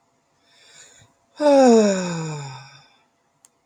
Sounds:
Sigh